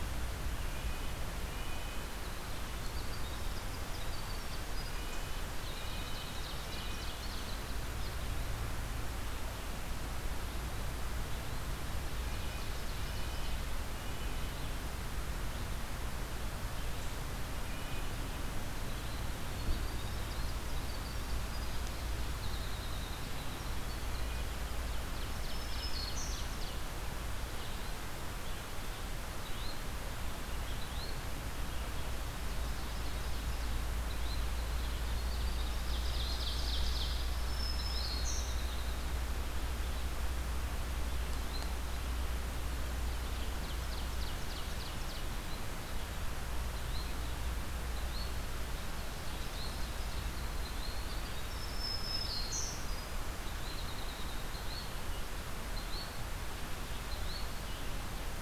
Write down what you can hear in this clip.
Red-breasted Nuthatch, Winter Wren, Ovenbird, Black-throated Green Warbler, Yellow-bellied Flycatcher